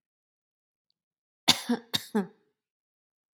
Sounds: Cough